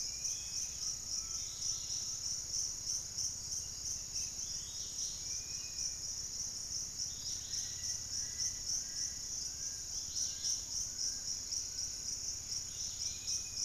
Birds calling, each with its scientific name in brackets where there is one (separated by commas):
Dusky-capped Greenlet (Pachysylvia hypoxantha), unidentified bird, Fasciated Antshrike (Cymbilaimus lineatus), Undulated Tinamou (Crypturellus undulatus), Dusky-capped Flycatcher (Myiarchus tuberculifer), Buff-throated Woodcreeper (Xiphorhynchus guttatus), Ringed Woodpecker (Celeus torquatus), Pygmy Antwren (Myrmotherula brachyura)